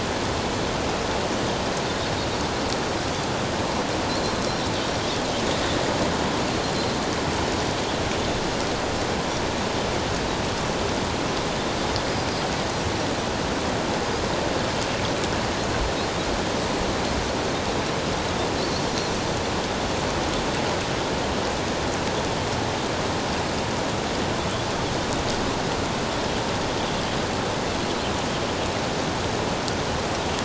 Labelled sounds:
13.9	14.2	Pacific white-sided dolphin, 4.8 to 5.0 kHz

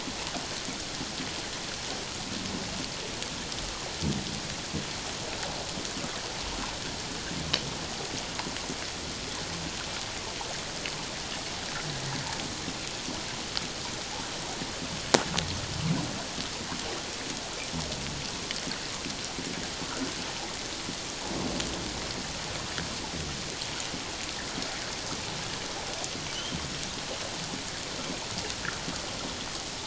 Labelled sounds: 26.3	26.6	humpback whale, 2.8 to 3.3 kHz

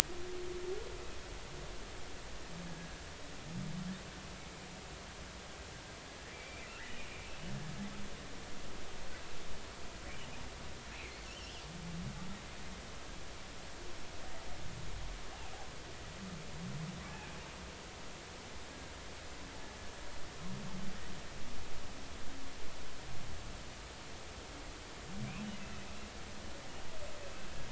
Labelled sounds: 2.7	3.0	killer whale, 1.5 to 1.7 kHz
6.3	6.7	killer whale, 2.2 to 2.6 kHz
7.5	7.7	killer whale, 1.6 to 1.8 kHz
10.9	11.6	killer whale, 2.0 to 3.4 kHz

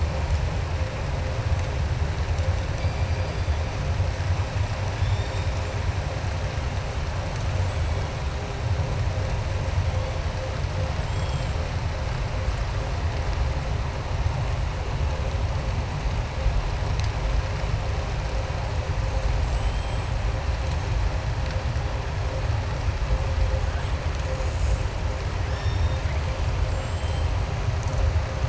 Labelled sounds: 4.9	5.8	killer whale, southern resident, 3.3 to 7.4 kHz
11.0	11.6	killer whale, southern resident, 2.3 to 8.0 kHz
19.3	20.1	killer whale, southern resident, 2.7 to 8.0 kHz
25.4	26.2	killer whale, southern resident, 1.5 to 5.6 kHz

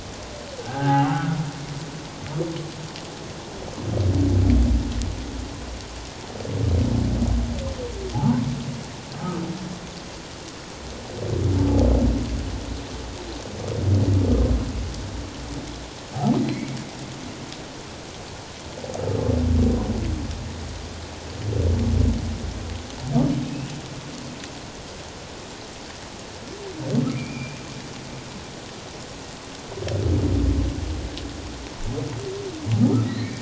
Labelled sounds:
0.6	1.3	humpback whale, 0.78 to 1.7 kHz
8.1	8.5	humpback whale, 0.78 to 1.1 kHz
9.1	9.4	humpback whale, 1.2 to 1.3 kHz
16.4	16.8	humpback whale, 1.9 to 2.3 kHz
23.4	23.7	humpback whale, 2.5 to 2.9 kHz
27.1	27.6	humpback whale, 2.1 to 2.5 kHz
32.8	33.4	humpback whale, 1.2 to 2.3 kHz

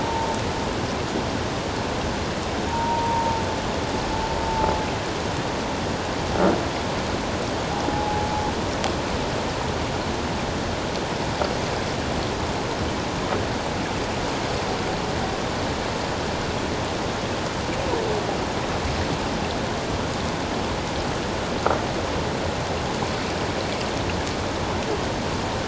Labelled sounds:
2.7	3.4	humpback whale, 0.81 to 1.0 kHz
7.8	8.3	humpback whale, 0.78 to 0.88 kHz

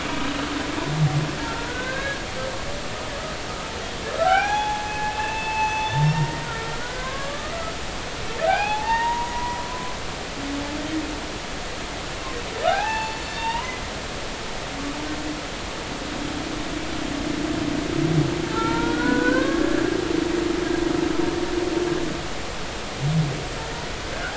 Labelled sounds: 1.4	2.3	humpback whale, 0.83 to 1.8 kHz
4.2	7.7	humpback whale, 0.80 to 6.2 kHz
8.5	9.9	humpback whale, 0.80 to 4.7 kHz
12.6	13.8	humpback whale, 0.80 to 4.6 kHz
18.5	19.6	humpback whale, 0.83 to 1.7 kHz

